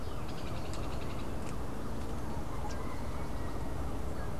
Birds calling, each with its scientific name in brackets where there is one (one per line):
Hoffmann's Woodpecker (Melanerpes hoffmannii)